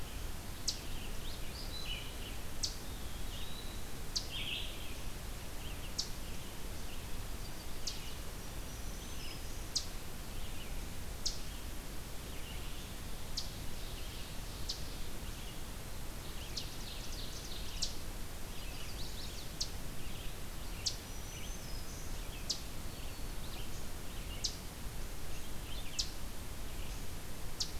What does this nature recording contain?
Eastern Chipmunk, Red-eyed Vireo, Eastern Wood-Pewee, Black-throated Green Warbler, Ovenbird, Chestnut-sided Warbler